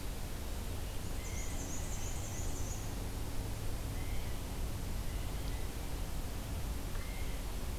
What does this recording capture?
Black-and-white Warbler, Blue Jay